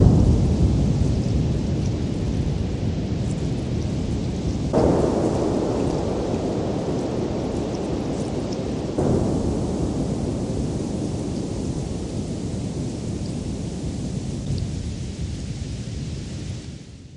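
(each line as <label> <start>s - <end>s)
Thunder rolls. 0.0s - 17.2s
Heavy rain. 0.0s - 17.2s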